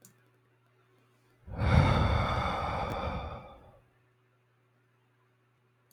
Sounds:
Sigh